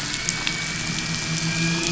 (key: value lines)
label: anthrophony, boat engine
recorder: SoundTrap 500